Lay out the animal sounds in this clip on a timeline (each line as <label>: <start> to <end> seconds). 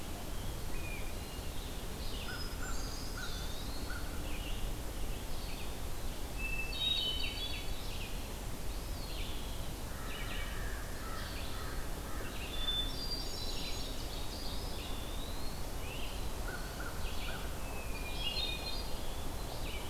Hermit Thrush (Catharus guttatus): 1.0 to 4.2 seconds
Red-eyed Vireo (Vireo olivaceus): 1.8 to 19.9 seconds
American Crow (Corvus brachyrhynchos): 1.9 to 4.3 seconds
Eastern Wood-Pewee (Contopus virens): 2.6 to 4.1 seconds
Hermit Thrush (Catharus guttatus): 6.2 to 7.7 seconds
Eastern Wood-Pewee (Contopus virens): 8.3 to 9.9 seconds
American Crow (Corvus brachyrhynchos): 9.7 to 12.8 seconds
Hermit Thrush (Catharus guttatus): 12.3 to 14.1 seconds
Eastern Wood-Pewee (Contopus virens): 14.4 to 15.6 seconds
American Crow (Corvus brachyrhynchos): 16.4 to 17.7 seconds
Hermit Thrush (Catharus guttatus): 17.7 to 19.2 seconds